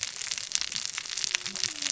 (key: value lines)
label: biophony, cascading saw
recorder: SoundTrap 600 or HydroMoth